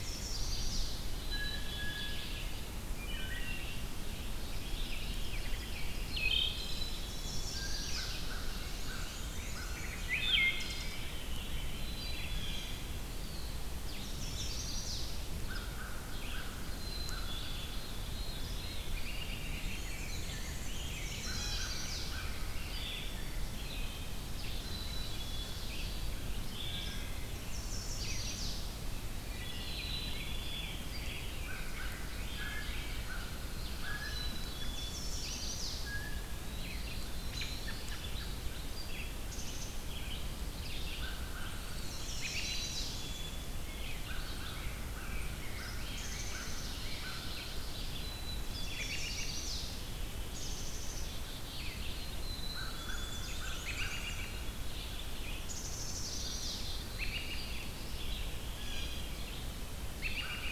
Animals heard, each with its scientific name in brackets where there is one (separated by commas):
Chestnut-sided Warbler (Setophaga pensylvanica), Red-eyed Vireo (Vireo olivaceus), Rose-breasted Grosbeak (Pheucticus ludovicianus), unidentified call, American Crow (Corvus brachyrhynchos), Wood Thrush (Hylocichla mustelina), American Robin (Turdus migratorius), Veery (Catharus fuscescens), Black-capped Chickadee (Poecile atricapillus), Eastern Wood-Pewee (Contopus virens), Blue Jay (Cyanocitta cristata), Black-and-white Warbler (Mniotilta varia), Ovenbird (Seiurus aurocapilla)